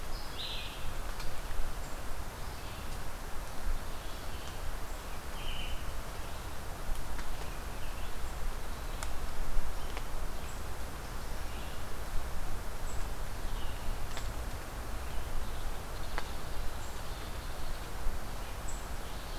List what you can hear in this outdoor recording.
Red-eyed Vireo, unknown mammal